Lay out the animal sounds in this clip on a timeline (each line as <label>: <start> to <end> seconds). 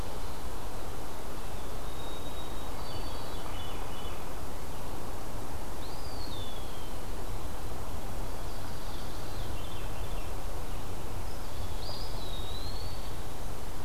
White-throated Sparrow (Zonotrichia albicollis): 1.5 to 3.4 seconds
Veery (Catharus fuscescens): 2.8 to 4.3 seconds
Eastern Wood-Pewee (Contopus virens): 5.7 to 6.9 seconds
Veery (Catharus fuscescens): 8.4 to 10.3 seconds
Dark-eyed Junco (Junco hyemalis): 11.4 to 13.2 seconds
Eastern Wood-Pewee (Contopus virens): 11.6 to 13.2 seconds